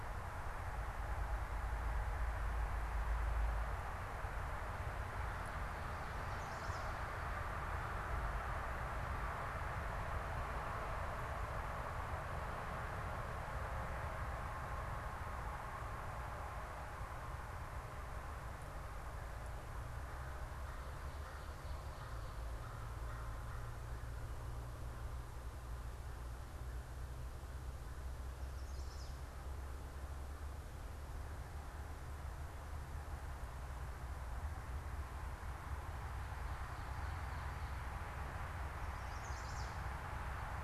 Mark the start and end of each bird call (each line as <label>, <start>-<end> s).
Chestnut-sided Warbler (Setophaga pensylvanica), 6.1-6.9 s
American Crow (Corvus brachyrhynchos), 18.7-33.8 s
Chestnut-sided Warbler (Setophaga pensylvanica), 28.2-29.4 s
Chestnut-sided Warbler (Setophaga pensylvanica), 38.8-39.8 s